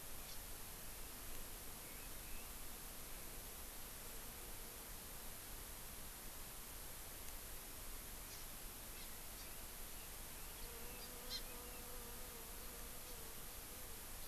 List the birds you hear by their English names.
Hawaii Amakihi, Red-billed Leiothrix